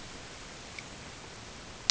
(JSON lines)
{"label": "ambient", "recorder": "HydroMoth"}